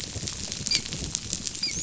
{"label": "biophony, dolphin", "recorder": "SoundTrap 500"}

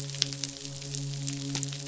{"label": "biophony, midshipman", "recorder": "SoundTrap 500"}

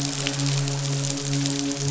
{"label": "biophony, midshipman", "recorder": "SoundTrap 500"}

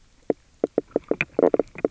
{"label": "biophony, knock croak", "recorder": "SoundTrap 300"}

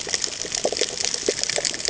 {"label": "ambient", "recorder": "HydroMoth"}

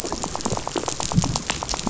{"label": "biophony, rattle", "recorder": "SoundTrap 500"}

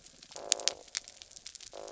{"label": "biophony", "recorder": "SoundTrap 300"}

